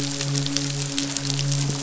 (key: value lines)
label: biophony, midshipman
recorder: SoundTrap 500